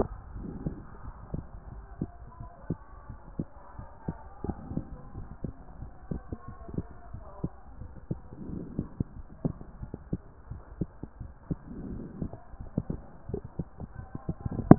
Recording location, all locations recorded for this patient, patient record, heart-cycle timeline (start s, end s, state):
pulmonary valve (PV)
pulmonary valve (PV)
#Age: Adolescent
#Sex: Male
#Height: 170.0 cm
#Weight: 78.7 kg
#Pregnancy status: False
#Murmur: Absent
#Murmur locations: nan
#Most audible location: nan
#Systolic murmur timing: nan
#Systolic murmur shape: nan
#Systolic murmur grading: nan
#Systolic murmur pitch: nan
#Systolic murmur quality: nan
#Diastolic murmur timing: nan
#Diastolic murmur shape: nan
#Diastolic murmur grading: nan
#Diastolic murmur pitch: nan
#Diastolic murmur quality: nan
#Outcome: Abnormal
#Campaign: 2014 screening campaign
0.18	0.44	diastole
0.44	0.58	S1
0.58	0.64	systole
0.64	0.78	S2
0.78	1.04	diastole
1.04	1.14	S1
1.14	1.30	systole
1.30	1.46	S2
1.46	1.74	diastole
1.74	1.84	S1
1.84	2.00	systole
2.00	2.10	S2
2.10	2.40	diastole
2.40	2.50	S1
2.50	2.68	systole
2.68	2.78	S2
2.78	3.06	diastole
3.06	3.18	S1
3.18	3.34	systole
3.34	3.46	S2
3.46	3.78	diastole
3.78	3.88	S1
3.88	4.08	systole
4.08	4.18	S2
4.18	4.48	diastole
4.48	4.60	S1
4.60	4.72	systole
4.72	4.86	S2
4.86	5.16	diastole
5.16	5.30	S1
5.30	5.44	systole
5.44	5.56	S2
5.56	5.80	diastole
5.80	5.92	S1
5.92	6.08	systole
6.08	6.22	S2
6.22	6.48	diastole
6.48	6.56	S1
6.56	6.72	systole
6.72	6.86	S2
6.86	7.12	diastole
7.12	7.24	S1
7.24	7.42	systole
7.42	7.54	S2
7.54	7.82	diastole
7.82	7.94	S1
7.94	8.10	systole
8.10	8.22	S2
8.22	8.46	diastole
8.46	8.62	S1
8.62	8.76	systole
8.76	8.90	S2
8.90	9.18	diastole
9.18	9.28	S1
9.28	9.40	systole
9.40	9.52	S2
9.52	9.80	diastole
9.80	9.90	S1
9.90	10.10	systole
10.10	10.20	S2
10.20	10.50	diastole
10.50	10.62	S1
10.62	10.78	systole
10.78	10.90	S2
10.90	11.20	diastole
11.20	11.34	S1
11.34	11.50	systole
11.50	11.60	S2
11.60	11.88	diastole
11.88	12.06	S1
12.06	12.20	systole
12.20	12.34	S2
12.34	12.60	diastole
12.60	12.70	S1
12.70	12.90	systole
12.90	13.02	S2
13.02	13.28	diastole
13.28	13.42	S1
13.42	13.50	systole
13.50	13.58	S2
13.58	13.82	diastole
13.82	13.90	S1
13.90	14.00	systole
14.00	14.10	S2
14.10	14.42	diastole
14.42	14.56	S1
14.56	14.68	systole
14.68	14.78	S2